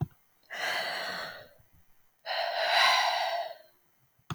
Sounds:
Sigh